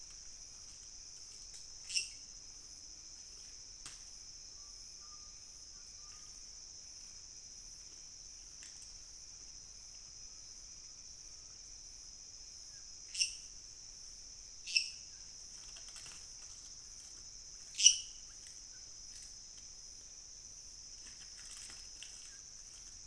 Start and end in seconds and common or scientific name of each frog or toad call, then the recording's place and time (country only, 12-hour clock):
1.8	2.2	lesser tree frog
13.1	15.1	lesser tree frog
17.7	18.1	lesser tree frog
Brazil, 2:15am